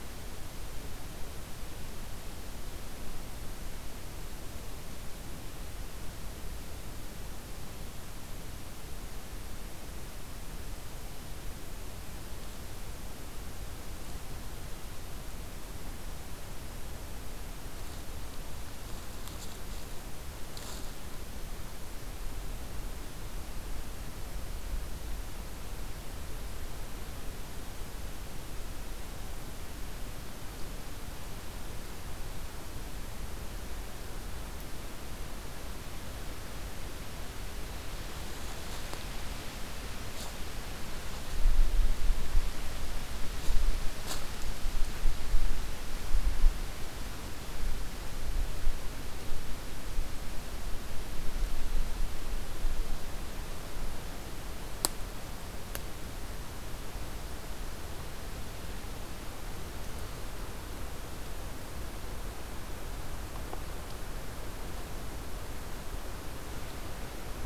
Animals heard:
forest ambience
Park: Katahdin Woods and Waters National Monument